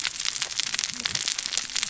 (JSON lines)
{"label": "biophony, cascading saw", "recorder": "SoundTrap 600 or HydroMoth"}